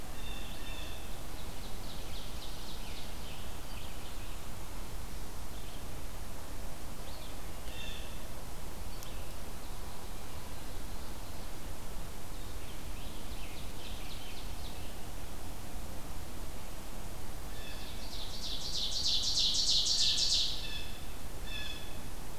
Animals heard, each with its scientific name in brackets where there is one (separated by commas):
Scarlet Tanager (Piranga olivacea), Blue Jay (Cyanocitta cristata), Red-eyed Vireo (Vireo olivaceus), Ovenbird (Seiurus aurocapilla)